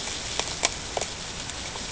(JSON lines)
{"label": "ambient", "recorder": "HydroMoth"}